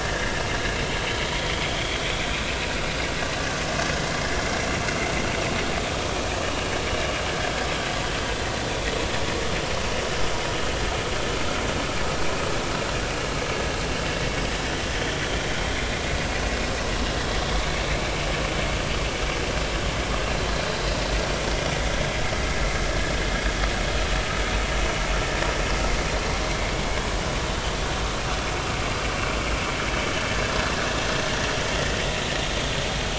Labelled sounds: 1.3	1.6	vessel noise, 3.0 to 3.5 kHz
6.4	6.7	vessel noise, 2.7 to 3.0 kHz

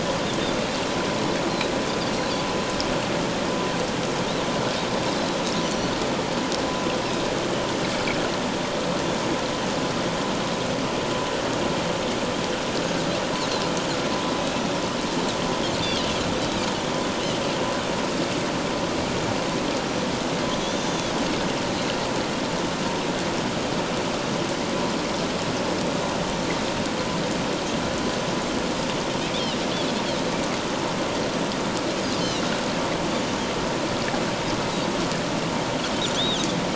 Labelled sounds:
5.0	5.9	Pacific white-sided dolphin, 3.8 to 6.0 kHz
15.8	16.1	Pacific white-sided dolphin, 2.8 to 3.6 kHz
20.6	21.1	Pacific white-sided dolphin, 3.2 to 6.7 kHz
32.2	32.4	Pacific white-sided dolphin, 3.7 to 4.6 kHz
36.1	36.4	Pacific white-sided dolphin, 3.0 to 3.9 kHz

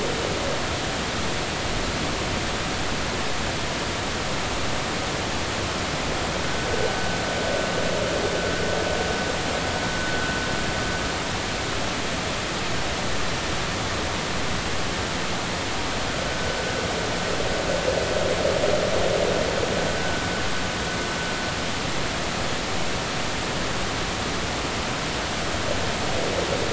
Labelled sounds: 6.4	6.7	vessel noise, 1.4 to 1.6 kHz
16.3	16.6	vessel noise, 1.5 to 1.6 kHz

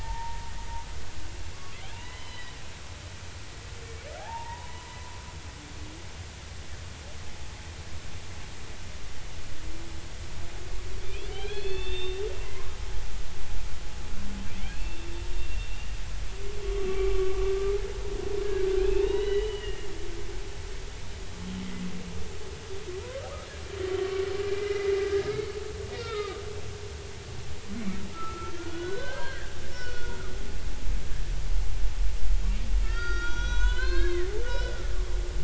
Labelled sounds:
0.0	0.5	humpback whale, 0.86 to 0.99 kHz
1.9	2.5	humpback whale, 0.86 to 5.2 kHz
4.2	4.9	humpback whale, 0.80 to 1.1 kHz
11.0	12.7	humpback whale, 0.96 to 4.4 kHz
14.6	15.7	humpback whale, 2.1 to 2.8 kHz
16.6	17.5	humpback whale, 1.1 to 2.4 kHz
18.8	19.8	humpback whale, 1.7 to 4.0 kHz
23.0	23.3	humpback whale, 0.90 to 1.4 kHz
24.5	25.5	humpback whale, 1.5 to 2.2 kHz
25.9	26.4	humpback whale, 1.2 to 5.2 kHz
28.1	30.3	humpback whale, 0.96 to 5.6 kHz
32.8	34.8	humpback whale, 0.93 to 6.5 kHz

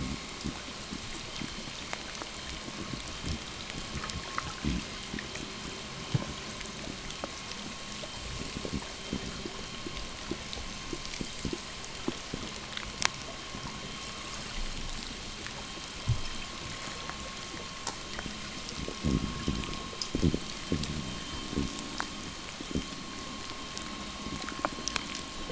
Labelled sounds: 13.6	23.9	vessel noise, 0.83 to 3.4 kHz
18.9	23.1	fish, 0 to 0.74 kHz

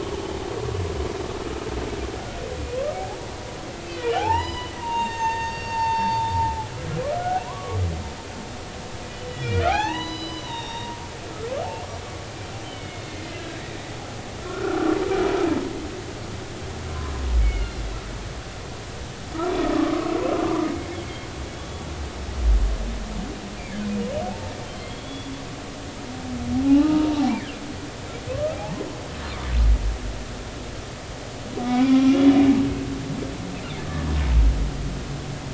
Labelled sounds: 4.0	6.3	humpback whale, 0.80 to 6.6 kHz
7.2	7.8	humpback whale, 0.93 to 1.6 kHz
9.3	11.0	humpback whale, 0.80 to 5.7 kHz
12.6	13.6	humpback whale, 1.6 to 4.4 kHz
14.4	15.0	humpback whale, 1.2 to 1.5 kHz
17.4	17.7	humpback whale, 2.0 to 2.3 kHz
19.7	20.7	humpback whale, 1.0 to 1.3 kHz
21.5	21.9	humpback whale, 3.3 to 3.4 kHz
23.6	23.8	humpback whale, 2.0 to 2.5 kHz
24.2	25.3	humpback whale, 0.80 to 3.5 kHz
26.6	27.5	humpback whale, 0.80 to 2.4 kHz
28.3	28.6	humpback whale, 0.99 to 1.3 kHz
31.6	32.3	humpback whale, 1.2 to 3.5 kHz

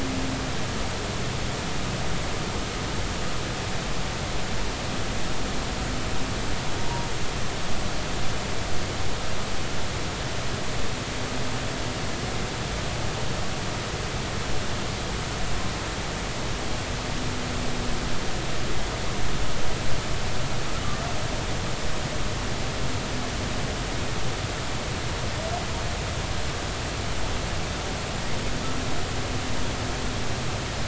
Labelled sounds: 6.8	7.1	humpback whale, 0.86 to 0.99 kHz

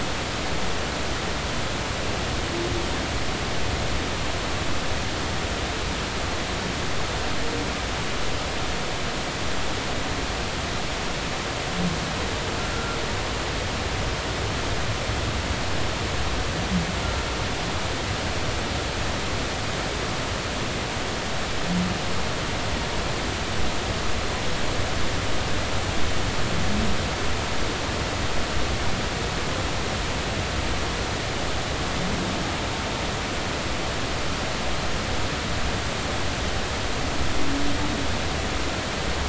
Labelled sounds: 12.7	13.0	humpback whale, 1.3 to 1.5 kHz

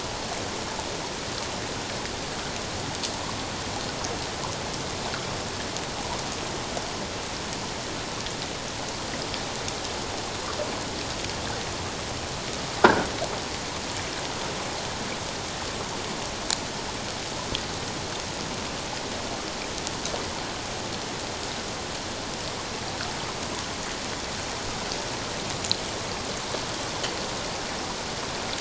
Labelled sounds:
12.8	13.1	croaking sound likely from a nearby submerged object, 1.3 to 1.7 kHz

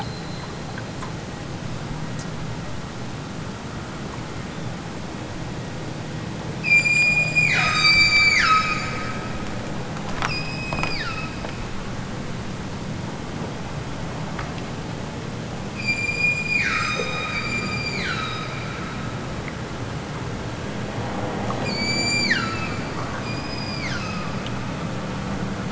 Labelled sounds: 6.6	8.9	killer whale, southern Alaska resident, 0.83 to 8.0 kHz
10.2	11.4	killer whale, southern Alaska resident, 0.92 to 8.0 kHz
15.8	18.7	killer whale, southern Alaska resident, 0.73 to 8.0 kHz
21.5	22.9	killer whale, southern Alaska resident, 0.83 to 8.0 kHz
23.1	24.4	killer whale, southern Alaska resident, 0.83 to 8.0 kHz

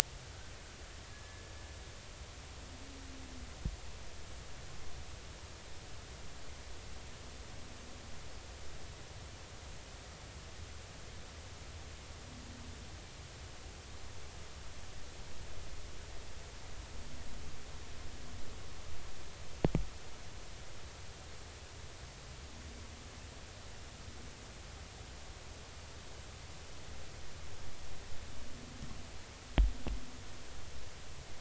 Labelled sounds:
1.1	1.5	humpback whale, 1.6 to 1.8 kHz

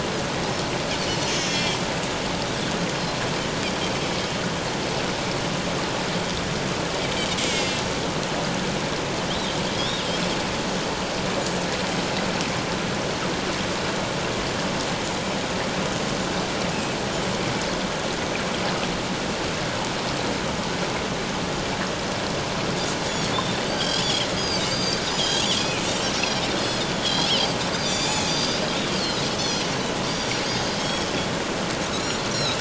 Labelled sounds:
1.3	1.8	Pacific white-sided dolphin, 2.3 to 5.7 kHz
7.5	7.8	Pacific white-sided dolphin, 2.1 to 7.5 kHz
9.7	10.0	Pacific white-sided dolphin, 3.2 to 5.7 kHz
23.6	25.9	Pacific white-sided dolphin, 1.5 to 7.9 kHz
26.1	28.6	Pacific white-sided dolphin, 2.3 to 5.9 kHz
29.3	29.7	Pacific white-sided dolphin, 2.9 to 6.2 kHz
30.1	31.1	Pacific white-sided dolphin, 3.2 to 6.8 kHz
31.9	32.6	Pacific white-sided dolphin, 2.5 to 5.9 kHz

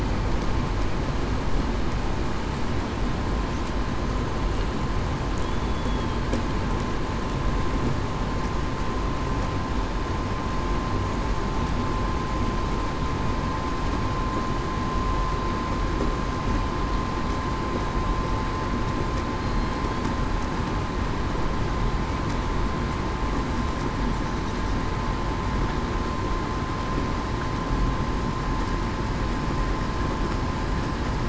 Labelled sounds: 5.5	6.2	killer whale, southern resident, 3.2 to 3.5 kHz

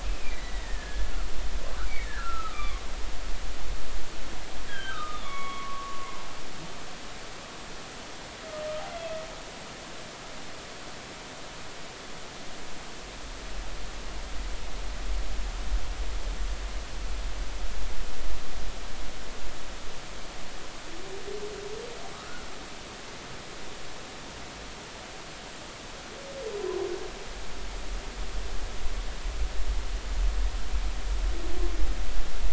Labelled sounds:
0.0	1.1	humpback whale, 1.6 to 2.6 kHz
1.9	2.8	humpback whale, 1.0 to 3.6 kHz
4.7	6.3	humpback whale, 0.80 to 3.9 kHz

